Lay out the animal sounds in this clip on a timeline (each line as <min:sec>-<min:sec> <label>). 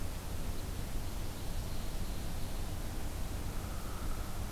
0:00.7-0:02.8 Ovenbird (Seiurus aurocapilla)
0:03.5-0:04.5 Hairy Woodpecker (Dryobates villosus)